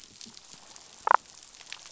{"label": "biophony, damselfish", "recorder": "SoundTrap 500"}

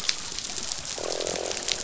{"label": "biophony, croak", "recorder": "SoundTrap 500"}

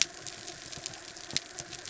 {"label": "biophony", "recorder": "SoundTrap 300"}
{"label": "anthrophony, mechanical", "recorder": "SoundTrap 300"}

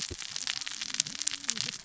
{"label": "biophony, cascading saw", "recorder": "SoundTrap 600 or HydroMoth"}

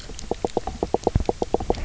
{"label": "biophony, knock croak", "recorder": "SoundTrap 300"}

